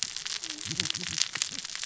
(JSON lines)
{"label": "biophony, cascading saw", "recorder": "SoundTrap 600 or HydroMoth"}